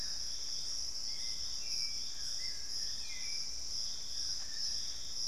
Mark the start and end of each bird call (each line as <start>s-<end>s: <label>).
0.0s-5.3s: Dusky-throated Antshrike (Thamnomanes ardesiacus)
0.0s-5.3s: Piratic Flycatcher (Legatus leucophaius)
0.7s-5.3s: Hauxwell's Thrush (Turdus hauxwelli)